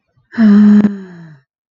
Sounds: Sigh